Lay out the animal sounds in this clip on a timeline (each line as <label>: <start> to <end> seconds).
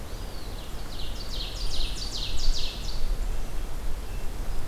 Eastern Wood-Pewee (Contopus virens): 0.0 to 1.0 seconds
Ovenbird (Seiurus aurocapilla): 0.3 to 3.0 seconds
Golden-crowned Kinglet (Regulus satrapa): 1.3 to 2.2 seconds